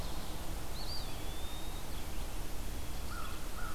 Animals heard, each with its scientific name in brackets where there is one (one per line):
Eastern Wood-Pewee (Contopus virens)
Red-eyed Vireo (Vireo olivaceus)
American Crow (Corvus brachyrhynchos)